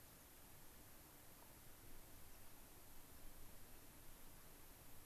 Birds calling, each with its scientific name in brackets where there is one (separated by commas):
American Pipit (Anthus rubescens)